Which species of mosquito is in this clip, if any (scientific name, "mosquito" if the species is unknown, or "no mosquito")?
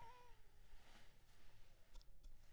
Anopheles maculipalpis